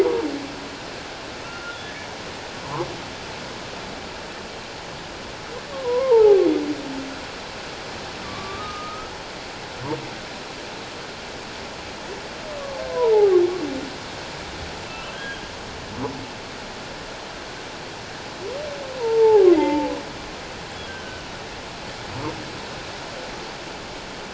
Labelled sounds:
1.4	1.8	humpback whale, 1.3 to 1.5 kHz
5.7	6.4	humpback whale, 0.78 to 1.2 kHz
8.2	9.1	humpback whale, 1.0 to 1.4 kHz
12.9	13.4	humpback whale, 0.78 to 1.1 kHz
15.1	15.4	humpback whale, 1.5 to 3.3 kHz
19.0	19.9	humpback whale, 0.78 to 2.1 kHz
20.9	21.2	humpback whale, 1.5 to 1.6 kHz

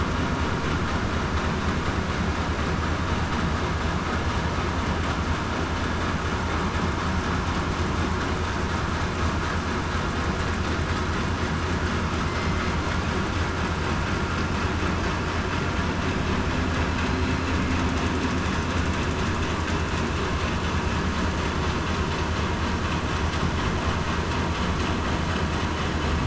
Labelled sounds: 12.2	12.6	killer whale, southern resident, 2.0 to 2.1 kHz

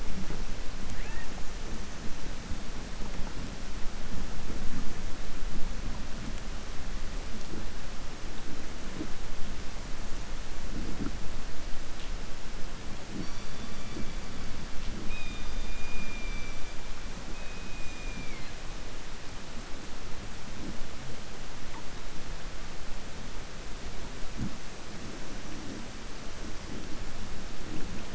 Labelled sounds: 17.3	18.5	killer whale, southern resident, 1.7 to 4.3 kHz

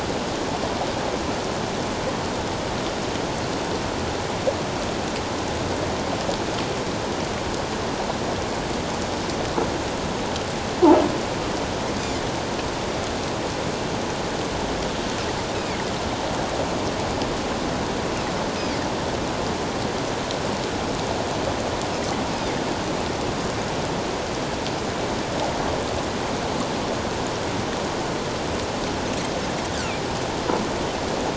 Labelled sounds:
15.5	15.8	Pacific white-sided dolphin, 2.1 to 2.6 kHz

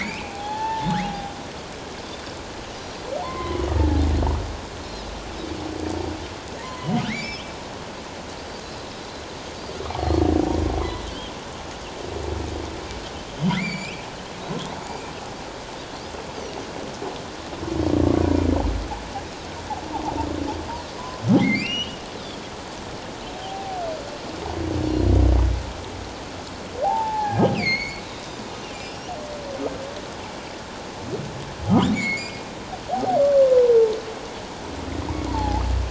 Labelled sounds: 0.0	1.3	humpback whale, 0.78 to 3.8 kHz
0.4	0.7	Pacific white-sided dolphin, 4.2 to 4.4 kHz
2.7	3.0	Pacific white-sided dolphin, 5.6 to 5.9 kHz
3.2	3.7	humpback whale, 0.84 to 3.2 kHz
6.6	7.5	humpback whale, 0.88 to 5.4 kHz
10.0	11.1	Pacific white-sided dolphin, 3.7 to 4.4 kHz
13.6	14.0	humpback whale, 1.9 to 7.5 kHz
21.4	22.0	humpback whale, 1.9 to 5.9 kHz
22.1	22.4	Pacific white-sided dolphin, 3.2 to 4.1 kHz
23.4	23.8	humpback whale, 0.78 to 0.81 kHz
26.8	28.4	humpback whale, 0.78 to 6.8 kHz
31.9	33.2	humpback whale, 0.78 to 4.6 kHz
35.3	35.6	humpback whale, 0.78 to 1.0 kHz

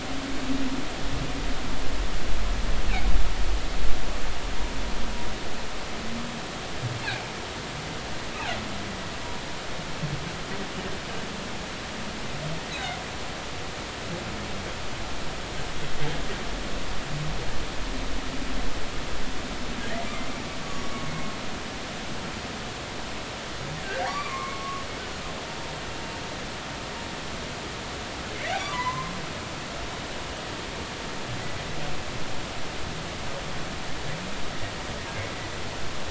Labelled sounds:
7.0	7.3	humpback whale, 2.2 to 2.8 kHz
12.7	13.0	humpback whale, 3.6 to 4.0 kHz
20.6	20.9	humpback whale, 1.1 to 1.2 kHz
23.8	24.8	humpback whale, 1.0 to 4.8 kHz
28.3	29.1	humpback whale, 0.93 to 2.4 kHz

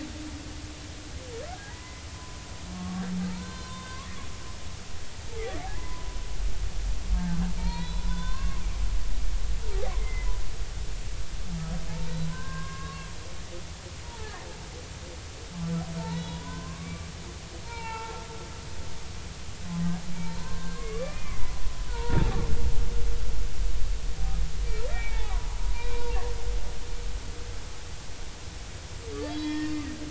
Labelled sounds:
1.6	4.0	humpback whale, 0.80 to 4.2 kHz
5.8	6.1	humpback whale, 0.96 to 1.1 kHz
7.2	8.6	humpback whale, 0.86 to 4.4 kHz
10.0	10.3	humpback whale, 1.9 to 2.1 kHz
12.2	13.0	humpback whale, 0.96 to 1.7 kHz
14.0	14.3	humpback whale, 0.83 to 0.99 kHz
16.1	18.2	humpback whale, 0.80 to 4.3 kHz
20.2	22.4	humpback whale, 0.80 to 2.5 kHz
24.9	25.4	humpback whale, 0.80 to 2.5 kHz
25.6	26.2	humpback whale, 0.86 to 2.5 kHz
29.3	29.7	humpback whale, 1.8 to 5.2 kHz

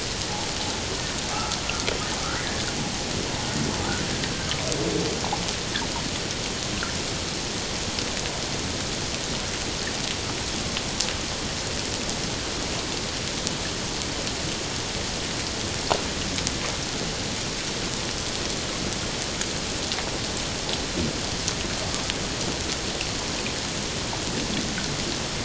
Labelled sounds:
1.3	1.6	humpback whale, 1.2 to 1.4 kHz

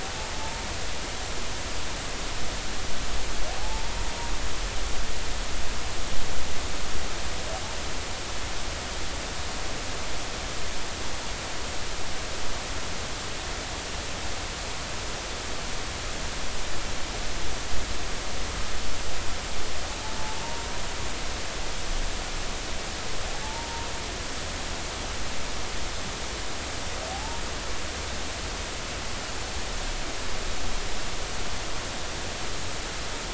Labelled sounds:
0.3	0.6	humpback whale, 0.83 to 0.96 kHz
3.6	4.1	humpback whale, 0.80 to 0.99 kHz
20.2	20.4	humpback whale, 0.83 to 0.93 kHz
23.4	23.9	humpback whale, 0.83 to 0.96 kHz
27.1	27.4	humpback whale, 0.80 to 0.96 kHz

